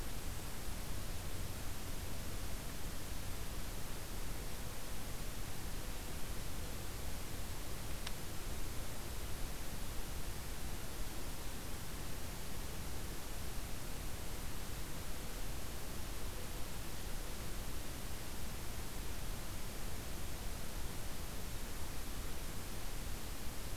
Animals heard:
forest ambience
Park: Acadia National Park